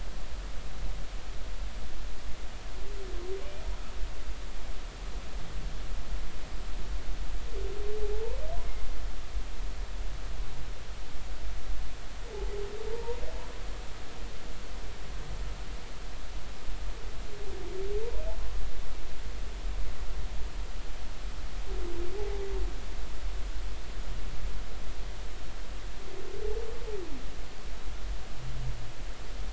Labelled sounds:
12.9	13.2	humpback whale, 0.86 to 1.0 kHz
22.2	22.4	humpback whale, 0.80 to 0.90 kHz

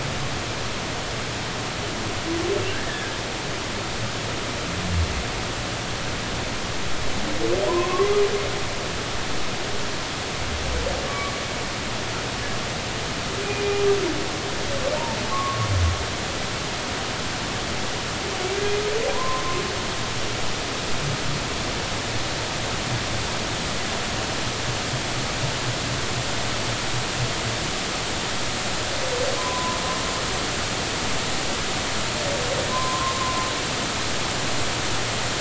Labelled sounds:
2.7	3.1	humpback whale, 1.5 to 1.9 kHz
7.7	8.1	humpback whale, 0.90 to 1.2 kHz
11.1	11.3	humpback whale, 1.1 to 1.2 kHz
15.3	15.7	humpback whale, 0.99 to 1.2 kHz
19.1	19.6	humpback whale, 0.93 to 1.1 kHz
30.4	30.8	humpback whale, 0.96 to 1.1 kHz
32.7	33.4	humpback whale, 0.96 to 1.1 kHz

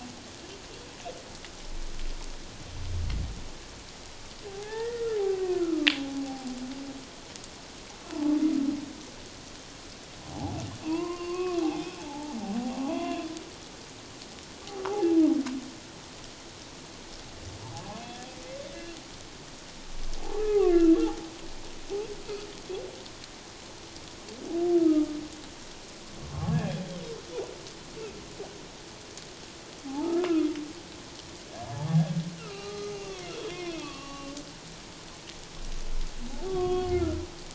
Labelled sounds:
4.5	5.2	humpback whale, 0.78 to 1.9 kHz
5.5	6.5	humpback whale, 0.78 to 1.5 kHz
8.1	8.4	humpback whale, 0.81 to 1.0 kHz
10.3	12.4	humpback whale, 0.78 to 2.8 kHz
12.9	13.3	humpback whale, 0.94 to 3.5 kHz
14.8	15.2	humpback whale, 0.78 to 1.2 kHz
20.4	21.0	humpback whale, 1.0 to 2.9 kHz
24.8	25.1	humpback whale, 1.2 to 1.4 kHz
26.3	26.8	humpback whale, 1.0 to 1.8 kHz
29.9	30.2	humpback whale, 0.78 to 1.0 kHz
31.9	33.2	humpback whale, 0.78 to 6.2 kHz
33.5	34.3	humpback whale, 1.1 to 3.6 kHz
36.5	37.2	humpback whale, 1.0 to 3.4 kHz

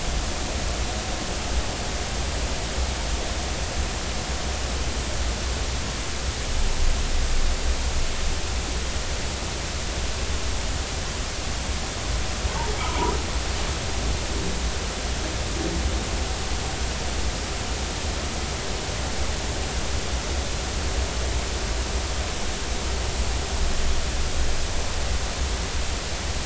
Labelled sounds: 12.8	13.1	humpback whale, 0.80 to 1.1 kHz

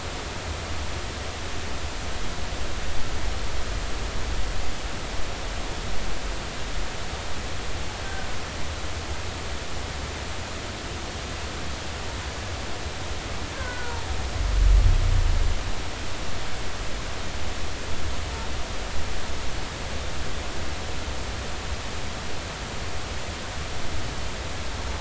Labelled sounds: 13.5	14.1	humpback whale, 0.86 to 1.7 kHz

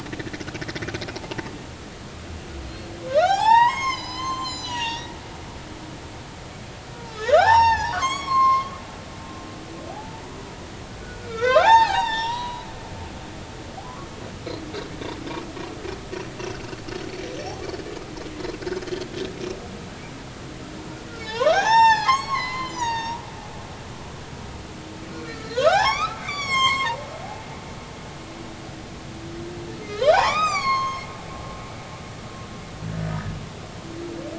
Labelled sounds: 1.1	1.4	humpback whale, 0.80 to 0.96 kHz
2.6	5.1	humpback whale, 0.80 to 8.0 kHz
7.1	8.7	humpback whale, 0.80 to 5.8 kHz
9.0	10.4	humpback whale, 0.86 to 8.0 kHz
11.2	12.7	humpback whale, 0.80 to 5.9 kHz
21.2	23.2	humpback whale, 0.80 to 7.8 kHz
25.1	27.0	humpback whale, 0.80 to 7.9 kHz
30.1	32.1	humpback whale, 0.80 to 7.6 kHz

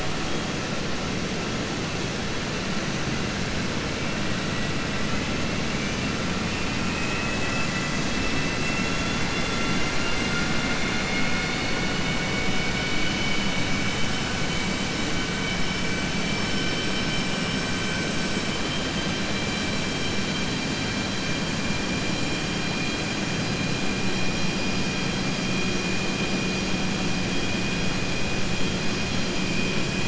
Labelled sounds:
6.8	8.0	vessel noise, 1.9 to 3.3 kHz
16.3	17.1	vessel noise, 4.6 to 5.5 kHz

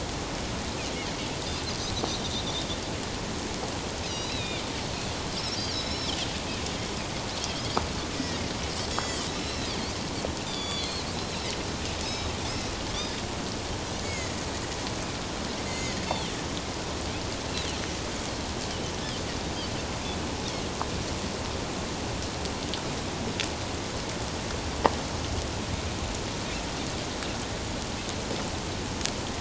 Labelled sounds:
2.2	2.4	Pacific white-sided dolphin, 3.5 to 4.0 kHz
4.1	4.7	Pacific white-sided dolphin, 2.2 to 4.1 kHz
5.4	6.1	Pacific white-sided dolphin, 3.8 to 5.8 kHz
8.9	9.7	Pacific white-sided dolphin, 2.5 to 7.4 kHz
10.4	11.5	Pacific white-sided dolphin, 3.2 to 7.4 kHz
12.0	12.3	Pacific white-sided dolphin, 3.7 to 5.3 kHz
13.0	14.4	Pacific white-sided dolphin, 1.9 to 6.9 kHz
15.7	16.0	Pacific white-sided dolphin, 1.9 to 6.8 kHz

